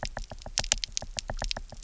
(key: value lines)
label: biophony, knock
recorder: SoundTrap 300